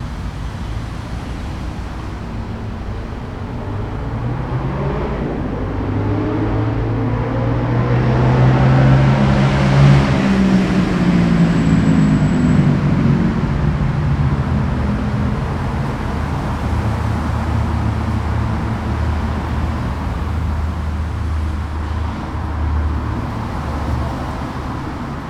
Is there a crash?
no